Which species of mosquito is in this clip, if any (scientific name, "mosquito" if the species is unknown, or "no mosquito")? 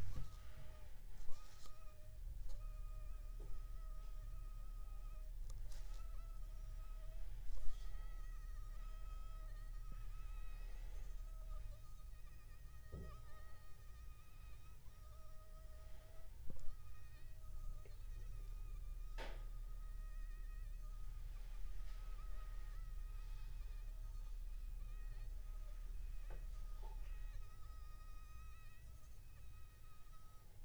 Anopheles funestus s.s.